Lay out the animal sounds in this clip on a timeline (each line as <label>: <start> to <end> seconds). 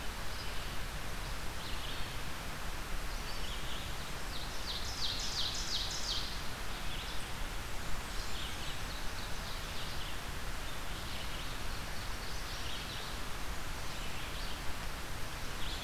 Red-eyed Vireo (Vireo olivaceus): 0.0 to 15.8 seconds
Ovenbird (Seiurus aurocapilla): 4.1 to 6.4 seconds
Ovenbird (Seiurus aurocapilla): 8.0 to 10.2 seconds